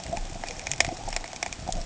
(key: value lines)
label: ambient
recorder: HydroMoth